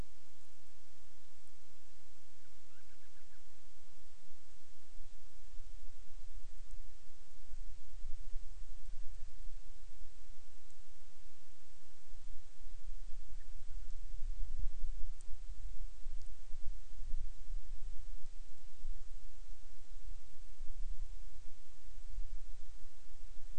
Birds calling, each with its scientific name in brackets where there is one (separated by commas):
Band-rumped Storm-Petrel (Hydrobates castro)